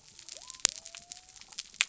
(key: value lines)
label: biophony
recorder: SoundTrap 300